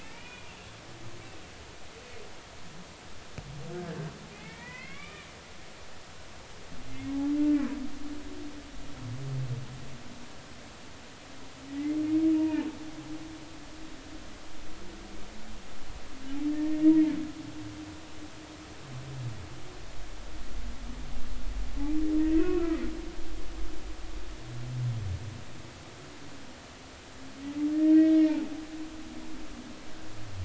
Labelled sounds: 0.0	0.5	humpback whale, 0.86 to 2.5 kHz
4.3	5.3	humpback whale, 0.93 to 3.6 kHz
11.8	12.0	humpback whale, 1.9 to 2.2 kHz
12.4	12.7	humpback whale, 0.83 to 0.99 kHz
16.5	16.8	humpback whale, 1.8 to 1.9 kHz
22.4	22.8	humpback whale, 1.2 to 2.7 kHz
27.9	28.4	humpback whale, 1.5 to 2.0 kHz

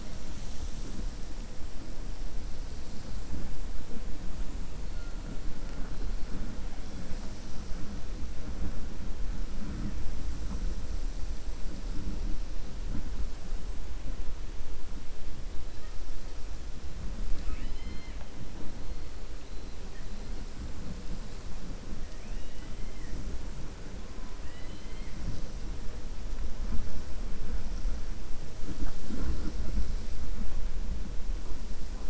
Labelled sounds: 17.3	18.3	killer whale, 0.33 to 5.2 kHz
22.1	22.7	killer whale, 1.5 to 3.9 kHz
24.3	25.2	killer whale, 1.8 to 4.2 kHz

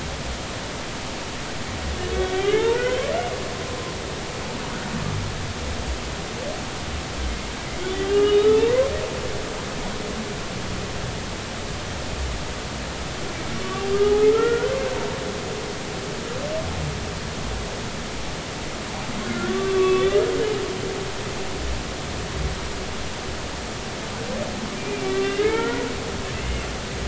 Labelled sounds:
2.3	3.1	humpback whale, 1.3 to 3.2 kHz
7.9	8.7	humpback whale, 2.8 to 3.9 kHz
14.3	14.8	humpback whale, 1.3 to 1.6 kHz
19.5	20.2	humpback whale, 1.1 to 3.7 kHz
24.8	25.9	humpback whale, 1.1 to 2.5 kHz

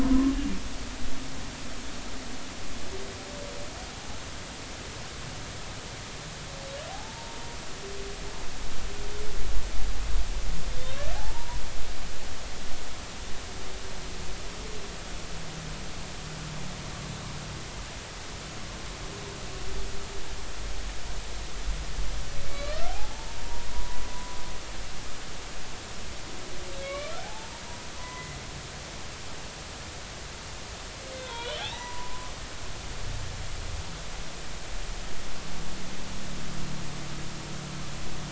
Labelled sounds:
0.0	0.3	humpback whale, 0.99 to 1.1 kHz
6.9	7.4	humpback whale, 0.80 to 0.96 kHz
11.2	11.6	humpback whale, 0.80 to 1.0 kHz
22.5	24.4	humpback whale, 0.80 to 4.4 kHz
26.8	27.5	humpback whale, 0.80 to 2.4 kHz
28.0	28.4	humpback whale, 0.96 to 2.1 kHz
31.1	32.3	humpback whale, 0.83 to 4.0 kHz

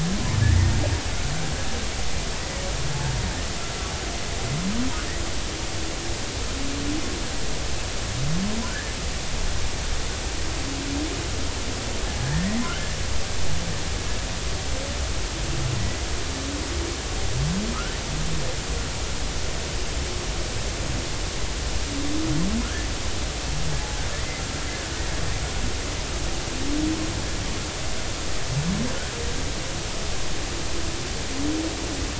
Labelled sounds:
8.6	8.9	humpback whale, 1.3 to 1.9 kHz
12.3	12.6	humpback whale, 1.8 to 2.0 kHz

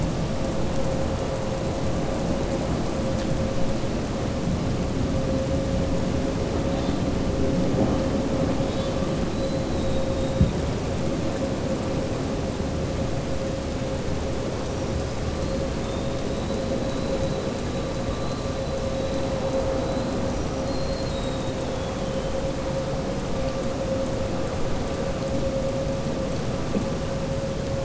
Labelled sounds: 8.6	9.0	killer whale, southern resident, 3.0 to 4.7 kHz

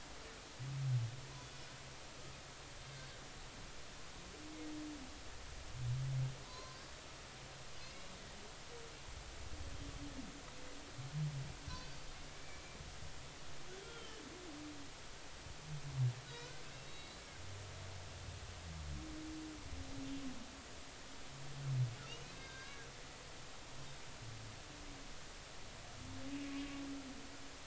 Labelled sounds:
6.4	6.9	humpback whale, 0.96 to 4.9 kHz
7.8	8.1	humpback whale, 2.5 to 2.9 kHz
11.7	12.0	humpback whale, 4.5 to 4.7 kHz
12.3	12.6	humpback whale, 2.2 to 2.4 kHz
13.8	14.2	humpback whale, 2.9 to 3.4 kHz
16.2	17.2	humpback whale, 1.4 to 4.6 kHz
22.3	22.9	humpback whale, 1.0 to 5.0 kHz

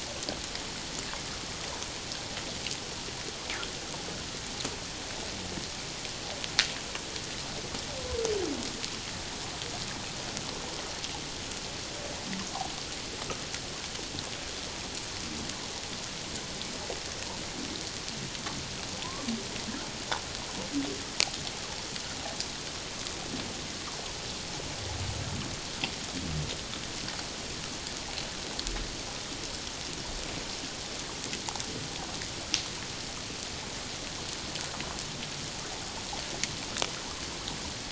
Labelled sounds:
19.0	19.3	humpback whale, 0.88 to 1.2 kHz

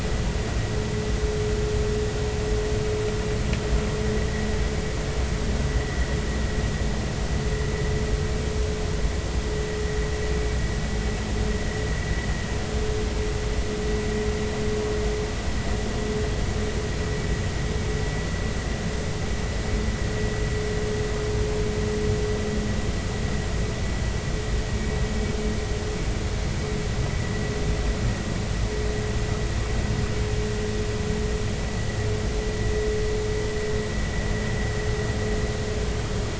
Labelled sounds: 5.7	6.1	vessel noise, 1.9 to 2.1 kHz

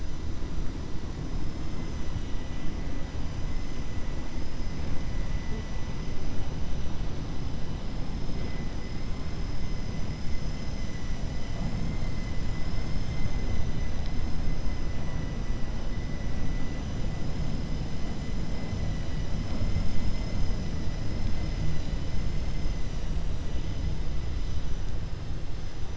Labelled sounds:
2.1	2.6	vessel noise, 2.0 to 3.9 kHz

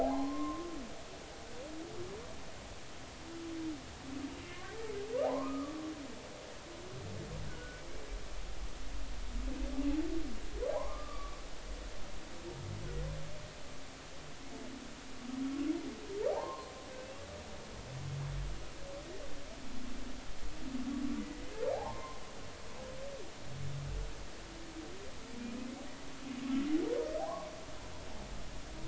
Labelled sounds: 0.0	0.7	humpback whale, 0.80 to 1.1 kHz
4.5	5.8	humpback whale, 0.80 to 2.0 kHz
7.5	7.8	humpback whale, 1.4 to 1.7 kHz
10.7	11.4	humpback whale, 0.80 to 1.2 kHz
16.3	17.2	humpback whale, 0.80 to 2.8 kHz
21.7	22.2	humpback whale, 0.80 to 1.1 kHz
27.2	27.5	humpback whale, 0.80 to 1.2 kHz

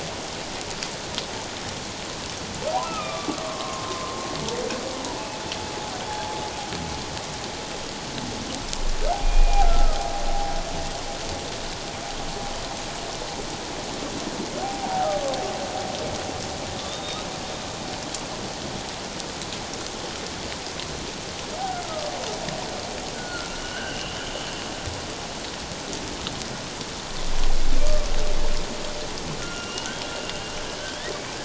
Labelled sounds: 2.8	4.2	humpback whale, 1.0 to 2.7 kHz
6.1	6.3	humpback whale, 0.81 to 0.97 kHz
9.2	10.0	humpback whale, 0.78 to 2.5 kHz
14.6	15.2	humpback whale, 0.78 to 1.0 kHz
16.9	17.3	humpback whale, 3.4 to 3.9 kHz
21.8	22.1	humpback whale, 1.2 to 1.4 kHz
23.1	24.2	humpback whale, 1.3 to 3.2 kHz
29.4	31.4	humpback whale, 1.3 to 3.7 kHz

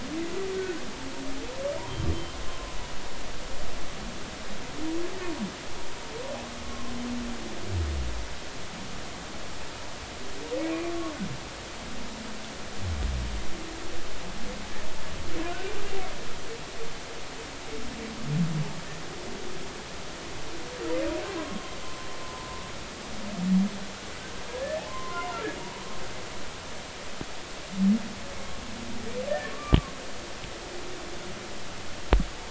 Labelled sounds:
6.7	6.9	humpback whale, 0.99 to 1.1 kHz
21.8	22.1	humpback whale, 0.99 to 1.1 kHz
22.4	22.7	humpback whale, 0.99 to 1.1 kHz
24.5	25.4	humpback whale, 0.90 to 2.1 kHz
30.4	30.8	humpback whale, 1.1 to 1.2 kHz

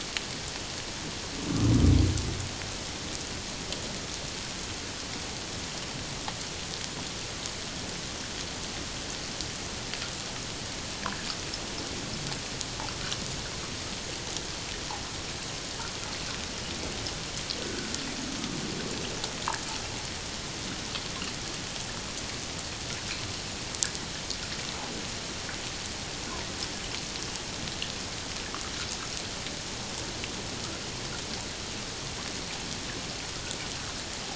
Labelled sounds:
17.6	17.9	humpback whale, 1.4 to 1.7 kHz

